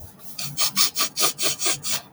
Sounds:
Sniff